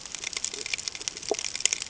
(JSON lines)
{"label": "ambient", "recorder": "HydroMoth"}